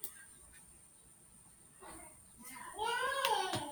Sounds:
Sniff